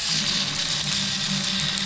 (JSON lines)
{"label": "anthrophony, boat engine", "recorder": "SoundTrap 500"}